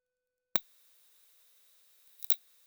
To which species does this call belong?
Leptophyes laticauda